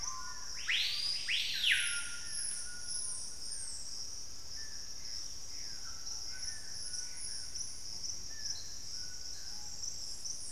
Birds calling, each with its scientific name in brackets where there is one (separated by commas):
Gray Antbird (Cercomacra cinerascens), Screaming Piha (Lipaugus vociferans), Dusky-throated Antshrike (Thamnomanes ardesiacus), White-throated Toucan (Ramphastos tucanus)